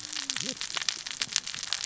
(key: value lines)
label: biophony, cascading saw
recorder: SoundTrap 600 or HydroMoth